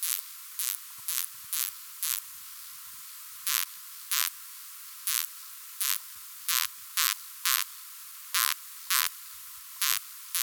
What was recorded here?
Poecilimon veluchianus, an orthopteran